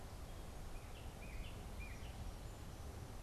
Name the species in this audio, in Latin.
unidentified bird